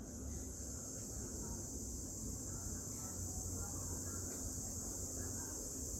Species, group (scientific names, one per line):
Tibicina haematodes
Cicadidae